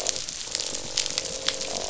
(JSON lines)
{"label": "biophony, croak", "recorder": "SoundTrap 500"}